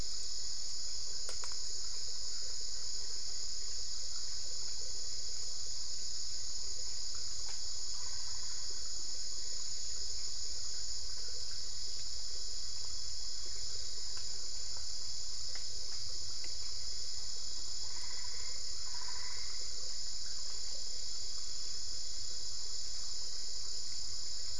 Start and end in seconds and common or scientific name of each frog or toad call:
7.9	9.1	Boana albopunctata
17.9	20.1	Boana albopunctata